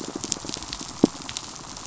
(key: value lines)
label: biophony, pulse
recorder: SoundTrap 500